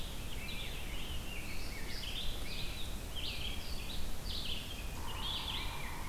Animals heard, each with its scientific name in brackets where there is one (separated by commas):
Red-eyed Vireo (Vireo olivaceus), Yellow-bellied Sapsucker (Sphyrapicus varius), Rose-breasted Grosbeak (Pheucticus ludovicianus)